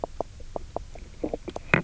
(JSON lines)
{"label": "biophony, knock croak", "recorder": "SoundTrap 300"}